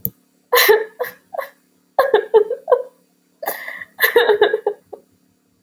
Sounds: Sigh